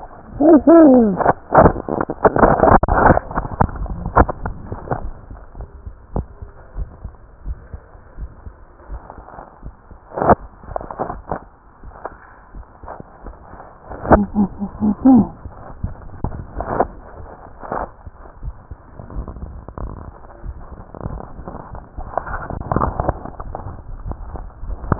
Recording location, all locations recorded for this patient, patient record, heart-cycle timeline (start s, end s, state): pulmonary valve (PV)
aortic valve (AV)+pulmonary valve (PV)+tricuspid valve (TV)+mitral valve (MV)
#Age: Child
#Sex: Female
#Height: 133.0 cm
#Weight: 28.8 kg
#Pregnancy status: False
#Murmur: Absent
#Murmur locations: nan
#Most audible location: nan
#Systolic murmur timing: nan
#Systolic murmur shape: nan
#Systolic murmur grading: nan
#Systolic murmur pitch: nan
#Systolic murmur quality: nan
#Diastolic murmur timing: nan
#Diastolic murmur shape: nan
#Diastolic murmur grading: nan
#Diastolic murmur pitch: nan
#Diastolic murmur quality: nan
#Outcome: Abnormal
#Campaign: 2015 screening campaign
0.00	5.38	unannotated
5.38	5.58	diastole
5.58	5.70	S1
5.70	5.84	systole
5.84	5.94	S2
5.94	6.14	diastole
6.14	6.28	S1
6.28	6.40	systole
6.40	6.50	S2
6.50	6.76	diastole
6.76	6.90	S1
6.90	7.02	systole
7.02	7.12	S2
7.12	7.44	diastole
7.44	7.58	S1
7.58	7.72	systole
7.72	7.86	S2
7.86	8.16	diastole
8.16	8.30	S1
8.30	8.44	systole
8.44	8.54	S2
8.54	8.88	diastole
8.88	9.00	S1
9.00	9.15	systole
9.15	9.28	S2
9.28	9.62	diastole
9.62	9.72	S1
9.72	9.86	systole
9.86	9.96	S2
9.96	10.16	diastole
10.16	24.99	unannotated